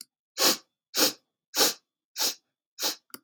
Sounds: Sniff